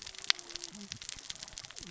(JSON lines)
{"label": "biophony, cascading saw", "recorder": "SoundTrap 600 or HydroMoth"}